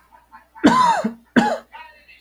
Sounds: Throat clearing